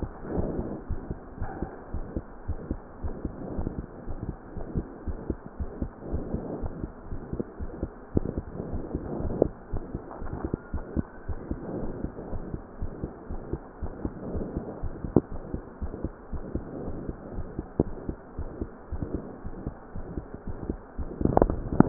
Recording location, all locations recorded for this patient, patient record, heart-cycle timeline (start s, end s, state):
aortic valve (AV)
aortic valve (AV)+pulmonary valve (PV)+tricuspid valve (TV)+mitral valve (MV)
#Age: Adolescent
#Sex: Female
#Height: 141.0 cm
#Weight: 34.4 kg
#Pregnancy status: False
#Murmur: Present
#Murmur locations: mitral valve (MV)+tricuspid valve (TV)
#Most audible location: mitral valve (MV)
#Systolic murmur timing: Holosystolic
#Systolic murmur shape: Decrescendo
#Systolic murmur grading: I/VI
#Systolic murmur pitch: Medium
#Systolic murmur quality: Blowing
#Diastolic murmur timing: nan
#Diastolic murmur shape: nan
#Diastolic murmur grading: nan
#Diastolic murmur pitch: nan
#Diastolic murmur quality: nan
#Outcome: Abnormal
#Campaign: 2015 screening campaign
0.00	0.63	unannotated
0.63	0.88	diastole
0.88	1.02	S1
1.02	1.08	systole
1.08	1.18	S2
1.18	1.40	diastole
1.40	1.50	S1
1.50	1.58	systole
1.58	1.70	S2
1.70	1.92	diastole
1.92	2.06	S1
2.06	2.14	systole
2.14	2.24	S2
2.24	2.48	diastole
2.48	2.58	S1
2.58	2.68	systole
2.68	2.80	S2
2.80	3.02	diastole
3.02	3.14	S1
3.14	3.22	systole
3.22	3.32	S2
3.32	3.52	diastole
3.52	3.68	S1
3.68	3.76	systole
3.76	3.88	S2
3.88	4.08	diastole
4.08	4.19	S1
4.19	4.26	systole
4.26	4.34	S2
4.34	4.56	diastole
4.56	4.67	S1
4.67	4.74	systole
4.74	4.86	S2
4.86	5.06	diastole
5.06	5.20	S1
5.20	5.26	systole
5.26	5.38	S2
5.38	5.58	diastole
5.58	5.69	S1
5.69	5.78	systole
5.78	5.90	S2
5.90	6.10	diastole
6.10	6.26	S1
6.26	6.32	systole
6.32	6.42	S2
6.42	6.60	diastole
6.60	6.74	S1
6.74	6.82	systole
6.82	6.90	S2
6.90	7.10	diastole
7.10	7.22	S1
7.22	7.30	systole
7.30	7.40	S2
7.40	7.60	diastole
7.60	7.70	S1
7.70	7.80	systole
7.80	7.92	S2
7.92	8.13	diastole
8.13	8.24	S1
8.24	8.36	systole
8.36	8.46	S2
8.46	8.68	diastole
8.68	8.82	S1
8.82	8.92	systole
8.92	9.02	S2
9.02	9.22	diastole
9.22	9.33	S1
9.33	9.40	systole
9.40	9.52	S2
9.52	9.72	diastole
9.72	9.84	S1
9.84	9.92	systole
9.92	10.02	S2
10.02	10.22	diastole
10.22	10.34	S1
10.34	10.42	systole
10.42	10.52	S2
10.52	10.74	diastole
10.74	10.84	S1
10.84	10.94	systole
10.94	11.06	S2
11.06	11.28	diastole
11.28	11.40	S1
11.40	11.48	systole
11.48	11.58	S2
11.58	11.81	diastole
11.81	11.92	S1
11.92	11.98	systole
11.98	12.12	S2
12.12	12.31	diastole
12.31	12.42	S1
12.42	12.52	systole
12.52	12.60	S2
12.60	12.80	diastole
12.80	12.92	S1
12.92	13.02	systole
13.02	13.12	S2
13.12	13.30	diastole
13.30	13.42	S1
13.42	13.50	systole
13.50	13.60	S2
13.60	13.81	diastole
13.81	13.93	S1
13.93	14.04	systole
14.04	14.12	S2
14.12	14.32	diastole
14.32	14.46	S1
14.46	14.55	systole
14.55	14.64	S2
14.64	14.82	diastole
14.82	14.93	S1
14.93	15.02	systole
15.02	15.14	S2
15.14	15.32	diastole
15.32	15.42	S1
15.42	15.52	systole
15.52	15.64	S2
15.64	15.82	diastole
15.82	15.92	S1
15.92	16.02	systole
16.02	16.14	S2
16.14	16.31	diastole
16.31	16.44	S1
16.44	16.50	systole
16.50	16.64	S2
16.64	16.84	diastole
16.84	16.98	S1
16.98	17.08	systole
17.08	17.18	S2
17.18	17.36	diastole
17.36	17.48	S1
17.48	17.56	systole
17.56	17.68	S2
17.68	17.85	diastole
17.85	17.98	S1
17.98	18.04	systole
18.04	18.16	S2
18.16	18.37	diastole
18.37	18.50	S1
18.50	18.60	systole
18.60	18.72	S2
18.72	18.92	diastole
18.92	19.01	S1
19.01	19.12	systole
19.12	19.24	S2
19.24	19.44	diastole
19.44	19.54	S1
19.54	19.62	systole
19.62	19.74	S2
19.74	19.96	diastole
19.96	20.06	S1
20.06	20.14	systole
20.14	20.24	S2
20.24	20.46	diastole
20.46	20.58	S1
20.58	20.67	systole
20.67	20.80	S2
20.80	20.98	diastole
20.98	21.08	S1
21.08	21.89	unannotated